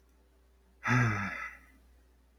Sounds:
Sigh